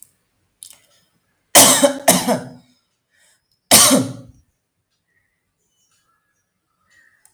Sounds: Cough